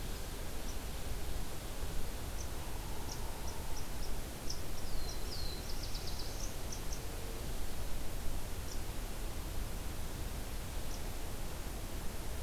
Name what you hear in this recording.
unidentified call, Black-throated Blue Warbler